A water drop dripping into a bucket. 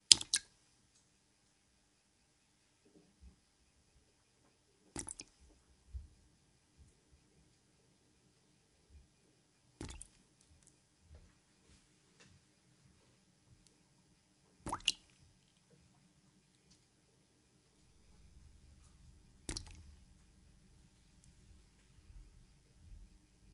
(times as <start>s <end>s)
0.0s 0.5s, 4.8s 5.3s, 9.6s 10.1s, 14.5s 15.0s, 19.4s 19.9s